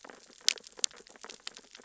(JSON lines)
{"label": "biophony, sea urchins (Echinidae)", "recorder": "SoundTrap 600 or HydroMoth"}